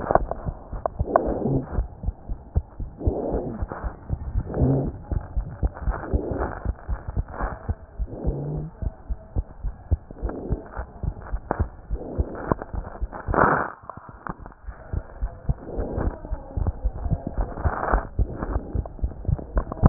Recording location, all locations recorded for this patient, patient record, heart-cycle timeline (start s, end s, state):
pulmonary valve (PV)
aortic valve (AV)+pulmonary valve (PV)+tricuspid valve (TV)+mitral valve (MV)
#Age: Child
#Sex: Male
#Height: 98.0 cm
#Weight: 14.0 kg
#Pregnancy status: False
#Murmur: Absent
#Murmur locations: nan
#Most audible location: nan
#Systolic murmur timing: nan
#Systolic murmur shape: nan
#Systolic murmur grading: nan
#Systolic murmur pitch: nan
#Systolic murmur quality: nan
#Diastolic murmur timing: nan
#Diastolic murmur shape: nan
#Diastolic murmur grading: nan
#Diastolic murmur pitch: nan
#Diastolic murmur quality: nan
#Outcome: Normal
#Campaign: 2015 screening campaign
0.00	5.34	unannotated
5.34	5.48	S1
5.48	5.61	systole
5.61	5.72	S2
5.72	5.86	diastole
5.86	6.00	S1
6.00	6.12	systole
6.12	6.26	S2
6.26	6.40	diastole
6.40	6.52	S1
6.52	6.64	systole
6.64	6.76	S2
6.76	6.90	diastole
6.90	7.00	S1
7.00	7.16	systole
7.16	7.26	S2
7.26	7.42	diastole
7.42	7.54	S1
7.54	7.68	systole
7.68	7.80	S2
7.80	8.00	diastole
8.00	8.10	S1
8.10	8.24	systole
8.24	8.36	S2
8.36	8.50	diastole
8.50	8.66	S1
8.66	8.82	systole
8.82	8.92	S2
8.92	9.10	diastole
9.10	9.18	S1
9.18	9.36	systole
9.36	9.48	S2
9.48	9.64	diastole
9.64	9.74	S1
9.74	9.88	systole
9.88	10.02	S2
10.02	10.22	diastole
10.22	10.34	S1
10.34	10.50	systole
10.50	10.60	S2
10.60	10.77	diastole
10.77	10.86	S1
10.86	11.04	systole
11.04	11.14	S2
11.14	11.32	diastole
11.32	11.42	S1
11.42	11.58	systole
11.58	11.72	S2
11.72	11.90	diastole
11.90	12.00	S1
12.00	12.14	systole
12.14	12.28	S2
12.28	12.46	diastole
12.46	12.58	S1
12.58	12.74	systole
12.74	12.86	S2
12.86	19.89	unannotated